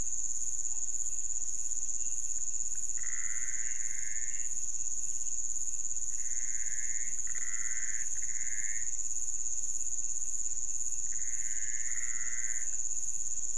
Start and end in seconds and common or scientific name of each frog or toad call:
2.7	2.8	pointedbelly frog
2.8	4.8	Pithecopus azureus
5.8	9.2	Pithecopus azureus
7.3	7.5	pointedbelly frog
10.8	13.0	Pithecopus azureus